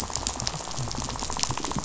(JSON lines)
{"label": "biophony, rattle", "recorder": "SoundTrap 500"}